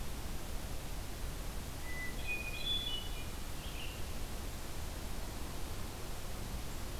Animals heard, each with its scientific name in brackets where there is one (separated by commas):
Hermit Thrush (Catharus guttatus), Red-eyed Vireo (Vireo olivaceus)